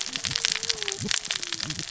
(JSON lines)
{"label": "biophony, cascading saw", "recorder": "SoundTrap 600 or HydroMoth"}